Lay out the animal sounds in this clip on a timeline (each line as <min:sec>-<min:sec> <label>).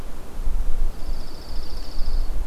0:00.8-0:02.5 Dark-eyed Junco (Junco hyemalis)